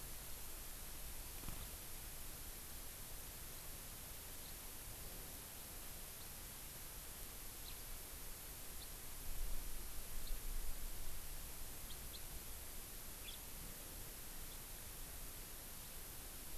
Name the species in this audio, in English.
House Finch